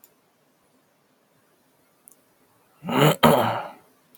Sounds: Throat clearing